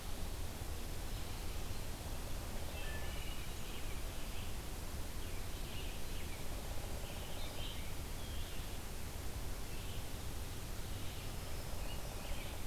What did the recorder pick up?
Red-eyed Vireo, Black-throated Green Warbler, Wood Thrush, Downy Woodpecker